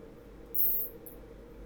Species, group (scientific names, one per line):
Isophya plevnensis
Orthoptera